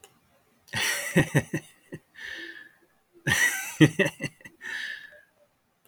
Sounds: Laughter